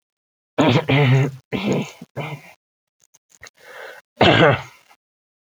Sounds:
Throat clearing